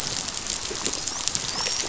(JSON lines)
{"label": "biophony, dolphin", "recorder": "SoundTrap 500"}